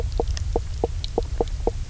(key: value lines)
label: biophony, knock croak
recorder: SoundTrap 300